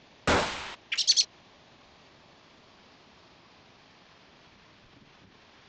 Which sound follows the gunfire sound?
bird